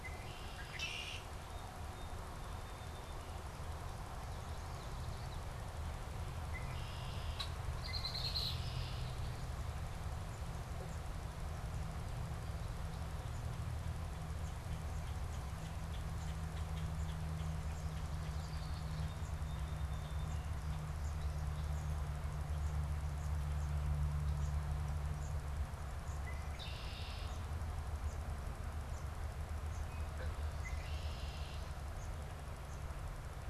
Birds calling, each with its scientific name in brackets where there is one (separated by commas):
Common Yellowthroat (Geothlypis trichas), Song Sparrow (Melospiza melodia), Red-winged Blackbird (Agelaius phoeniceus)